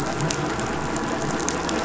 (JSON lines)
{"label": "anthrophony, boat engine", "recorder": "SoundTrap 500"}